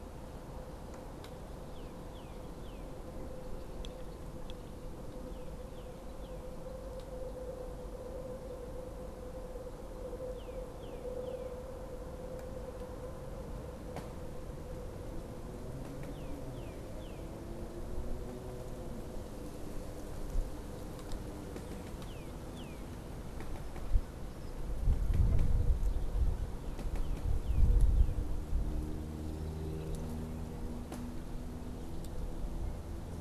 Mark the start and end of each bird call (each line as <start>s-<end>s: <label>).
1.5s-3.0s: Northern Cardinal (Cardinalis cardinalis)
5.1s-6.5s: Northern Cardinal (Cardinalis cardinalis)
10.1s-11.6s: Northern Cardinal (Cardinalis cardinalis)
16.0s-17.4s: Northern Cardinal (Cardinalis cardinalis)
21.6s-23.0s: Northern Cardinal (Cardinalis cardinalis)
26.8s-28.2s: Northern Cardinal (Cardinalis cardinalis)